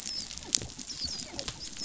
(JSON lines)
{"label": "biophony, dolphin", "recorder": "SoundTrap 500"}